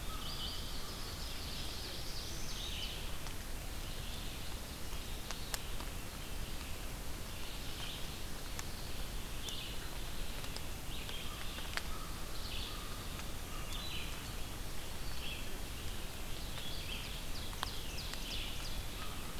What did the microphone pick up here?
American Crow, Red-eyed Vireo, Ovenbird, Black-throated Blue Warbler